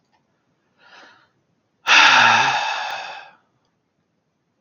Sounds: Sigh